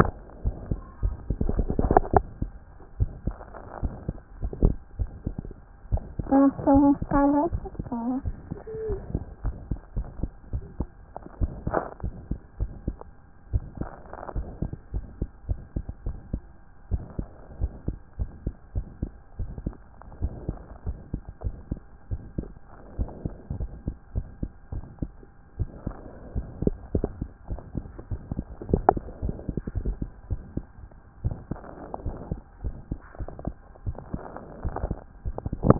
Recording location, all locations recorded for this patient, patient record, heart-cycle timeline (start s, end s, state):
tricuspid valve (TV)
aortic valve (AV)+pulmonary valve (PV)+tricuspid valve (TV)+mitral valve (MV)
#Age: Child
#Sex: Male
#Height: 101.0 cm
#Weight: 16.6 kg
#Pregnancy status: False
#Murmur: Present
#Murmur locations: mitral valve (MV)+pulmonary valve (PV)+tricuspid valve (TV)
#Most audible location: pulmonary valve (PV)
#Systolic murmur timing: Holosystolic
#Systolic murmur shape: Decrescendo
#Systolic murmur grading: I/VI
#Systolic murmur pitch: Low
#Systolic murmur quality: Blowing
#Diastolic murmur timing: nan
#Diastolic murmur shape: nan
#Diastolic murmur grading: nan
#Diastolic murmur pitch: nan
#Diastolic murmur quality: nan
#Outcome: Abnormal
#Campaign: 2014 screening campaign
0.00	8.88	unannotated
8.88	9.00	S1
9.00	9.14	systole
9.14	9.22	S2
9.22	9.44	diastole
9.44	9.56	S1
9.56	9.70	systole
9.70	9.78	S2
9.78	9.96	diastole
9.96	10.06	S1
10.06	10.20	systole
10.20	10.30	S2
10.30	10.52	diastole
10.52	10.64	S1
10.64	10.78	systole
10.78	10.88	S2
10.88	11.40	diastole
11.40	11.52	S1
11.52	11.70	systole
11.70	11.80	S2
11.80	12.04	diastole
12.04	12.14	S1
12.14	12.30	systole
12.30	12.38	S2
12.38	12.60	diastole
12.60	12.70	S1
12.70	12.86	systole
12.86	12.96	S2
12.96	13.52	diastole
13.52	13.64	S1
13.64	13.80	systole
13.80	13.90	S2
13.90	14.34	diastole
14.34	14.46	S1
14.46	14.62	systole
14.62	14.72	S2
14.72	14.94	diastole
14.94	15.06	S1
15.06	15.20	systole
15.20	15.30	S2
15.30	15.48	diastole
15.48	15.60	S1
15.60	15.74	systole
15.74	15.84	S2
15.84	16.06	diastole
16.06	16.16	S1
16.16	16.32	systole
16.32	16.42	S2
16.42	16.90	diastole
16.90	17.04	S1
17.04	17.18	systole
17.18	17.28	S2
17.28	17.60	diastole
17.60	17.72	S1
17.72	17.86	systole
17.86	17.96	S2
17.96	18.18	diastole
18.18	18.30	S1
18.30	18.44	systole
18.44	18.54	S2
18.54	18.74	diastole
18.74	18.86	S1
18.86	19.02	systole
19.02	19.10	S2
19.10	19.38	diastole
19.38	19.50	S1
19.50	19.64	systole
19.64	19.74	S2
19.74	20.20	diastole
20.20	20.32	S1
20.32	20.48	systole
20.48	20.58	S2
20.58	20.86	diastole
20.86	20.98	S1
20.98	21.12	systole
21.12	21.22	S2
21.22	21.44	diastole
21.44	21.56	S1
21.56	21.70	systole
21.70	21.80	S2
21.80	22.10	diastole
22.10	22.22	S1
22.22	22.38	systole
22.38	22.48	S2
22.48	22.98	diastole
22.98	23.10	S1
23.10	23.24	systole
23.24	23.34	S2
23.34	23.58	diastole
23.58	23.70	S1
23.70	23.86	systole
23.86	23.96	S2
23.96	24.14	diastole
24.14	24.26	S1
24.26	24.42	systole
24.42	24.50	S2
24.50	24.72	diastole
24.72	24.84	S1
24.84	25.00	systole
25.00	25.10	S2
25.10	25.58	diastole
25.58	25.70	S1
25.70	25.86	systole
25.86	25.96	S2
25.96	26.34	diastole
26.34	26.46	S1
26.46	26.64	systole
26.64	26.74	S2
26.74	26.96	diastole
26.96	27.08	S1
27.08	27.20	systole
27.20	27.30	S2
27.30	27.50	diastole
27.50	27.60	S1
27.60	27.76	systole
27.76	27.86	S2
27.86	28.12	diastole
28.12	28.20	S1
28.20	28.32	systole
28.32	28.44	S2
28.44	28.70	diastole
28.70	28.84	S1
28.84	28.94	systole
28.94	29.04	S2
29.04	29.24	diastole
29.24	29.34	S1
29.34	29.48	systole
29.48	29.56	S2
29.56	29.82	diastole
29.82	29.96	S1
29.96	30.02	systole
30.02	30.10	S2
30.10	30.30	diastole
30.30	30.40	S1
30.40	30.54	systole
30.54	30.64	S2
30.64	31.24	diastole
31.24	31.36	S1
31.36	31.50	systole
31.50	31.60	S2
31.60	32.04	diastole
32.04	32.16	S1
32.16	32.30	systole
32.30	32.40	S2
32.40	32.64	diastole
32.64	32.74	S1
32.74	32.90	systole
32.90	33.00	S2
33.00	33.20	diastole
33.20	33.30	S1
33.30	33.46	systole
33.46	33.56	S2
33.56	33.86	diastole
33.86	33.96	S1
33.96	34.12	systole
34.12	34.22	S2
34.22	34.64	diastole
34.64	35.79	unannotated